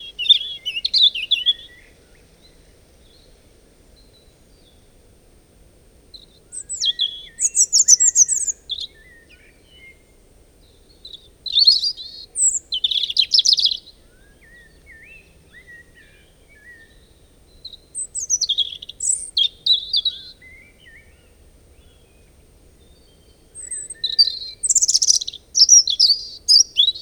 Are the birds making different sounds?
yes